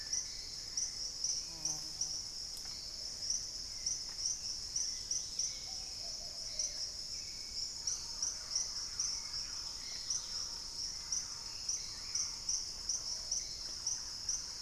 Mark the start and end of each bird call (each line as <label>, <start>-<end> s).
Black-tailed Trogon (Trogon melanurus), 0.0-1.4 s
Hauxwell's Thrush (Turdus hauxwelli), 0.0-14.6 s
Plumbeous Pigeon (Patagioenas plumbea), 0.0-14.6 s
unidentified bird, 0.3-1.1 s
Dusky-capped Greenlet (Pachysylvia hypoxantha), 4.8-10.7 s
Thrush-like Wren (Campylorhynchus turdinus), 7.7-14.6 s